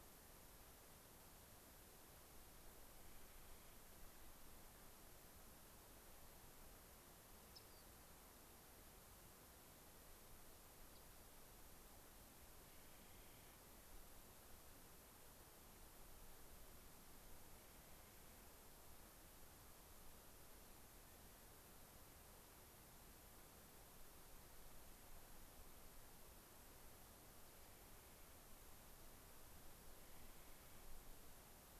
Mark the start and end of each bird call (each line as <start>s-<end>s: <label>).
2.9s-3.9s: Clark's Nutcracker (Nucifraga columbiana)
7.5s-7.9s: Rock Wren (Salpinctes obsoletus)
10.8s-11.3s: Rock Wren (Salpinctes obsoletus)
12.6s-13.6s: Clark's Nutcracker (Nucifraga columbiana)
17.5s-18.5s: Clark's Nutcracker (Nucifraga columbiana)
27.5s-28.4s: Clark's Nutcracker (Nucifraga columbiana)
29.8s-31.1s: Clark's Nutcracker (Nucifraga columbiana)